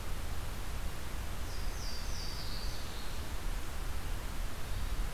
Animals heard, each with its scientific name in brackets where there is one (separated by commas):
Louisiana Waterthrush (Parkesia motacilla)